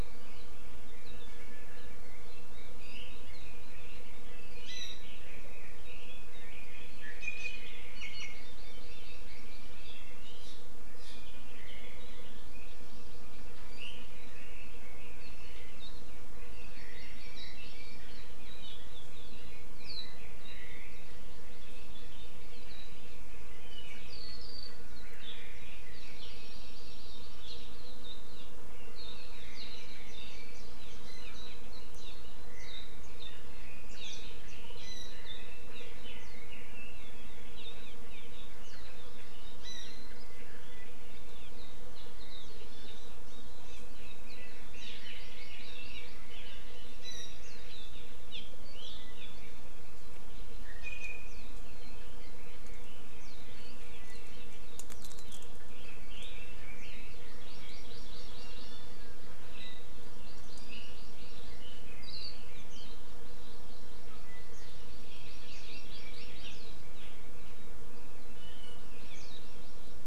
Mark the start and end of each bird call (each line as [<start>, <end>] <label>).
[2.70, 7.90] Red-billed Leiothrix (Leiothrix lutea)
[7.20, 8.40] Iiwi (Drepanis coccinea)
[8.30, 9.80] Hawaii Amakihi (Chlorodrepanis virens)
[12.50, 13.70] Hawaii Amakihi (Chlorodrepanis virens)
[16.40, 18.30] Hawaii Amakihi (Chlorodrepanis virens)
[21.10, 22.60] Hawaii Amakihi (Chlorodrepanis virens)
[26.00, 27.80] Hawaii Amakihi (Chlorodrepanis virens)
[30.10, 30.40] Warbling White-eye (Zosterops japonicus)
[31.00, 31.30] Iiwi (Drepanis coccinea)
[31.30, 31.60] Warbling White-eye (Zosterops japonicus)
[31.90, 32.10] Warbling White-eye (Zosterops japonicus)
[32.60, 32.90] Warbling White-eye (Zosterops japonicus)
[33.90, 34.20] Warbling White-eye (Zosterops japonicus)
[35.30, 37.30] Red-billed Leiothrix (Leiothrix lutea)
[44.70, 46.80] Red-billed Leiothrix (Leiothrix lutea)
[44.90, 46.60] Hawaii Amakihi (Chlorodrepanis virens)
[50.80, 51.30] Iiwi (Drepanis coccinea)
[57.30, 58.80] Hawaii Amakihi (Chlorodrepanis virens)
[60.00, 61.60] Hawaii Amakihi (Chlorodrepanis virens)
[63.00, 64.60] Hawaii Amakihi (Chlorodrepanis virens)
[64.90, 66.60] Hawaii Amakihi (Chlorodrepanis virens)
[68.30, 68.80] Iiwi (Drepanis coccinea)
[68.80, 70.00] Hawaii Amakihi (Chlorodrepanis virens)